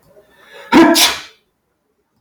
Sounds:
Sneeze